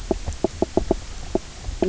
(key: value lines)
label: biophony, knock croak
recorder: SoundTrap 300